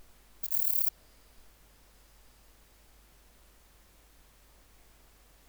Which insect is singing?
Rhacocleis germanica, an orthopteran